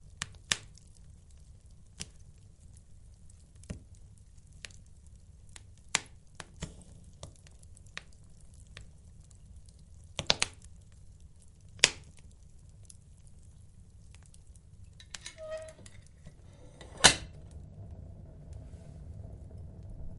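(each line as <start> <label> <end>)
0.0 Fire crackles quietly and repeatedly. 16.9
15.1 A distant glass sound fades away. 16.2
15.4 A quiet squeaking sound fades away. 16.2
16.9 A loud, sharp glass sound. 17.3
17.5 A dull, consistent background noise is heard in the distance. 20.2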